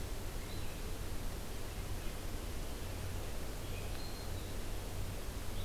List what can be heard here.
Red-eyed Vireo